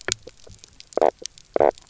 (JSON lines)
{"label": "biophony, knock croak", "recorder": "SoundTrap 300"}